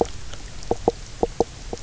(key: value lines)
label: biophony, knock croak
recorder: SoundTrap 300